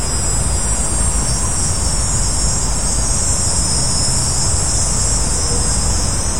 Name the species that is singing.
Neotibicen canicularis